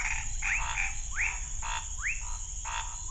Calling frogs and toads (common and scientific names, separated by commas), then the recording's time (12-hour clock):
rufous frog (Leptodactylus fuscus), Scinax fuscovarius
9:00pm